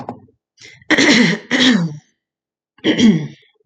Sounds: Throat clearing